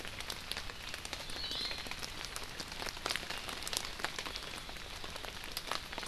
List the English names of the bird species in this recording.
Iiwi